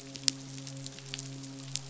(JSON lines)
{"label": "biophony, midshipman", "recorder": "SoundTrap 500"}